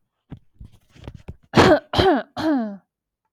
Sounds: Cough